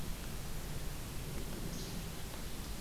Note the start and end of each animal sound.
[1.69, 2.08] Least Flycatcher (Empidonax minimus)

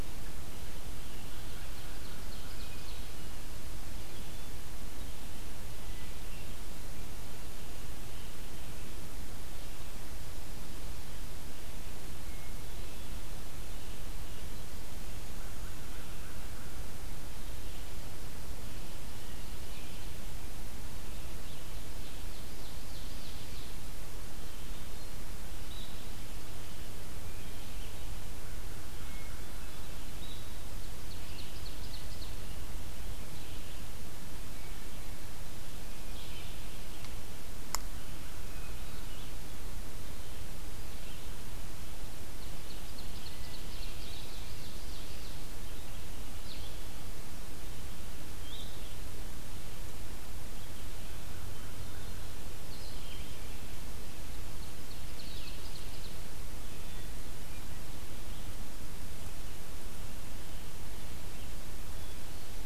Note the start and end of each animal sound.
[0.00, 46.28] Red-eyed Vireo (Vireo olivaceus)
[1.28, 3.10] Ovenbird (Seiurus aurocapilla)
[12.12, 13.16] Hermit Thrush (Catharus guttatus)
[15.29, 16.81] American Crow (Corvus brachyrhynchos)
[21.47, 23.90] Ovenbird (Seiurus aurocapilla)
[24.44, 25.31] Hermit Thrush (Catharus guttatus)
[28.95, 30.15] Hermit Thrush (Catharus guttatus)
[30.65, 32.55] Ovenbird (Seiurus aurocapilla)
[38.26, 39.45] Hermit Thrush (Catharus guttatus)
[42.28, 45.49] Ovenbird (Seiurus aurocapilla)
[46.09, 55.56] Blue-headed Vireo (Vireo solitarius)
[54.45, 56.24] Ovenbird (Seiurus aurocapilla)

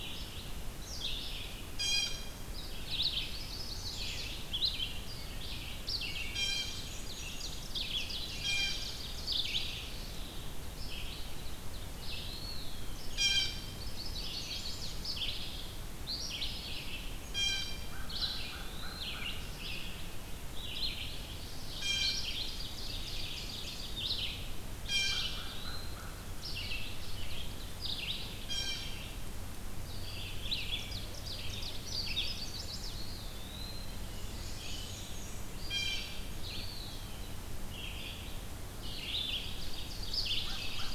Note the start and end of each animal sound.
[0.00, 22.57] Red-eyed Vireo (Vireo olivaceus)
[1.53, 2.46] Blue Jay (Cyanocitta cristata)
[2.94, 4.65] Chestnut-sided Warbler (Setophaga pensylvanica)
[6.06, 6.98] Blue Jay (Cyanocitta cristata)
[6.06, 9.88] Ovenbird (Seiurus aurocapilla)
[6.20, 7.73] Black-and-white Warbler (Mniotilta varia)
[8.02, 8.90] Blue Jay (Cyanocitta cristata)
[11.71, 13.47] Eastern Wood-Pewee (Contopus virens)
[13.00, 13.61] Blue Jay (Cyanocitta cristata)
[13.41, 15.17] Chestnut-sided Warbler (Setophaga pensylvanica)
[17.14, 17.81] Blue Jay (Cyanocitta cristata)
[17.63, 19.68] American Crow (Corvus brachyrhynchos)
[17.93, 19.67] Eastern Wood-Pewee (Contopus virens)
[20.89, 24.07] Ovenbird (Seiurus aurocapilla)
[21.60, 22.59] Blue Jay (Cyanocitta cristata)
[23.72, 40.95] Red-eyed Vireo (Vireo olivaceus)
[24.23, 26.71] American Crow (Corvus brachyrhynchos)
[24.47, 26.13] Eastern Wood-Pewee (Contopus virens)
[24.59, 25.89] Blue Jay (Cyanocitta cristata)
[28.30, 29.07] Blue Jay (Cyanocitta cristata)
[30.14, 32.42] Ovenbird (Seiurus aurocapilla)
[31.70, 33.11] Chestnut-sided Warbler (Setophaga pensylvanica)
[32.78, 34.31] Eastern Wood-Pewee (Contopus virens)
[33.74, 35.92] Black-and-white Warbler (Mniotilta varia)
[34.36, 35.27] Mourning Warbler (Geothlypis philadelphia)
[35.53, 36.24] Blue Jay (Cyanocitta cristata)
[36.38, 37.49] Eastern Wood-Pewee (Contopus virens)
[39.04, 40.95] Ovenbird (Seiurus aurocapilla)
[40.07, 40.95] American Crow (Corvus brachyrhynchos)

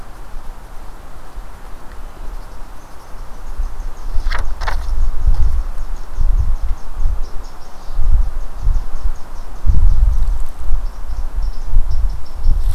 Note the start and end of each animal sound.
[2.21, 12.74] Eastern Chipmunk (Tamias striatus)

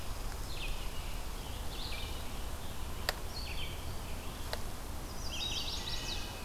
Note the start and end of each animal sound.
[0.00, 6.44] Red-eyed Vireo (Vireo olivaceus)
[4.95, 6.36] Chestnut-sided Warbler (Setophaga pensylvanica)
[5.52, 6.44] Wood Thrush (Hylocichla mustelina)

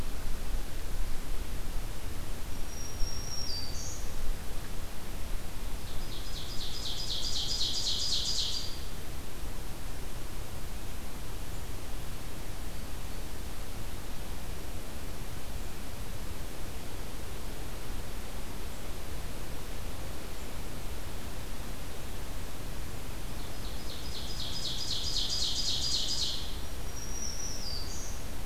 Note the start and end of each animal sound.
[2.44, 4.32] Black-throated Green Warbler (Setophaga virens)
[5.63, 9.14] Ovenbird (Seiurus aurocapilla)
[23.27, 26.55] Ovenbird (Seiurus aurocapilla)
[26.49, 28.45] Black-throated Green Warbler (Setophaga virens)

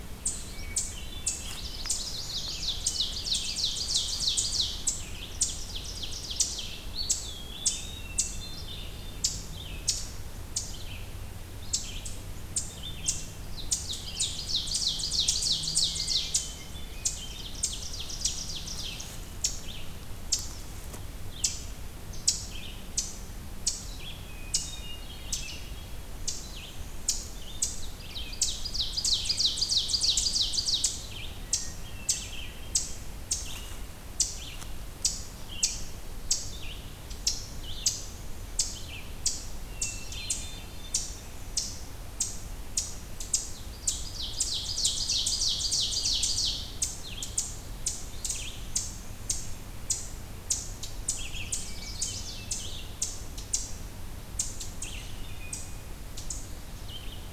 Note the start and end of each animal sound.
[0.00, 1.74] Hermit Thrush (Catharus guttatus)
[0.00, 32.64] Red-eyed Vireo (Vireo olivaceus)
[0.00, 57.33] Eastern Chipmunk (Tamias striatus)
[1.41, 2.99] Chestnut-sided Warbler (Setophaga pensylvanica)
[2.75, 4.91] Ovenbird (Seiurus aurocapilla)
[5.21, 6.88] Ovenbird (Seiurus aurocapilla)
[6.85, 8.15] Eastern Wood-Pewee (Contopus virens)
[7.85, 9.36] Hermit Thrush (Catharus guttatus)
[13.26, 16.54] Ovenbird (Seiurus aurocapilla)
[15.85, 17.59] Hermit Thrush (Catharus guttatus)
[17.28, 19.27] Ovenbird (Seiurus aurocapilla)
[24.07, 25.31] Hermit Thrush (Catharus guttatus)
[27.68, 31.21] Ovenbird (Seiurus aurocapilla)
[31.28, 32.98] Hermit Thrush (Catharus guttatus)
[33.29, 39.16] Red-eyed Vireo (Vireo olivaceus)
[39.66, 40.75] Hermit Thrush (Catharus guttatus)
[43.43, 53.01] Red-eyed Vireo (Vireo olivaceus)
[43.77, 46.91] Ovenbird (Seiurus aurocapilla)
[50.88, 52.93] Chestnut-sided Warbler (Setophaga pensylvanica)
[51.59, 52.91] Hermit Thrush (Catharus guttatus)
[54.65, 57.33] Red-eyed Vireo (Vireo olivaceus)

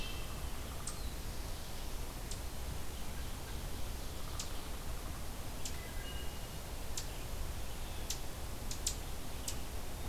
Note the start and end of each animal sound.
[0.00, 0.57] Wood Thrush (Hylocichla mustelina)
[0.80, 10.08] Eastern Chipmunk (Tamias striatus)
[5.64, 6.52] Wood Thrush (Hylocichla mustelina)
[7.01, 10.08] Red-eyed Vireo (Vireo olivaceus)

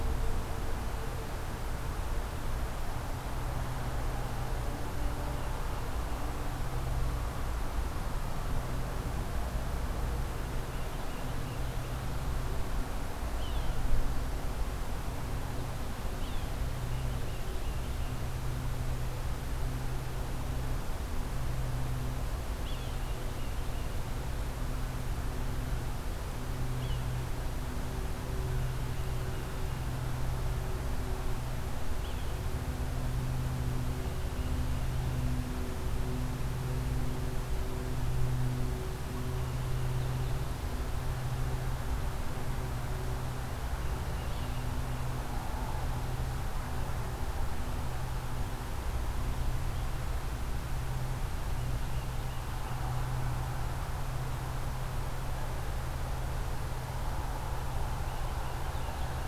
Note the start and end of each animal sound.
[10.24, 11.87] Tufted Titmouse (Baeolophus bicolor)
[13.20, 13.91] Yellow-bellied Sapsucker (Sphyrapicus varius)
[16.04, 16.59] Yellow-bellied Sapsucker (Sphyrapicus varius)
[16.84, 18.24] Tufted Titmouse (Baeolophus bicolor)
[22.54, 22.98] Yellow-bellied Sapsucker (Sphyrapicus varius)
[22.77, 24.38] Tufted Titmouse (Baeolophus bicolor)
[26.64, 27.35] Yellow-bellied Sapsucker (Sphyrapicus varius)
[28.35, 30.19] Tufted Titmouse (Baeolophus bicolor)
[31.84, 32.48] Yellow-bellied Sapsucker (Sphyrapicus varius)
[33.72, 35.13] Tufted Titmouse (Baeolophus bicolor)
[51.34, 53.21] Tufted Titmouse (Baeolophus bicolor)
[57.87, 59.27] Tufted Titmouse (Baeolophus bicolor)

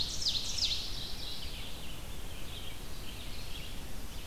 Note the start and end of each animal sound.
[0.00, 0.92] Ovenbird (Seiurus aurocapilla)
[0.00, 4.27] Red-eyed Vireo (Vireo olivaceus)
[0.32, 1.63] Mourning Warbler (Geothlypis philadelphia)

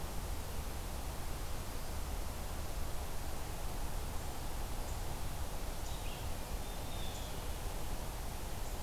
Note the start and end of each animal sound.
[5.61, 6.42] Red-eyed Vireo (Vireo olivaceus)
[6.78, 7.51] Blue Jay (Cyanocitta cristata)

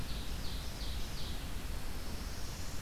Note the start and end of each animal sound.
[0.00, 1.42] Ovenbird (Seiurus aurocapilla)
[0.00, 2.81] Red-eyed Vireo (Vireo olivaceus)
[1.34, 2.81] Pine Warbler (Setophaga pinus)
[1.67, 2.81] Northern Parula (Setophaga americana)

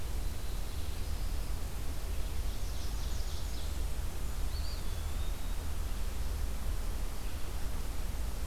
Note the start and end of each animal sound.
[0.00, 1.67] Black-throated Blue Warbler (Setophaga caerulescens)
[1.83, 3.93] Ovenbird (Seiurus aurocapilla)
[3.18, 4.98] Blackburnian Warbler (Setophaga fusca)
[4.35, 5.72] Eastern Wood-Pewee (Contopus virens)

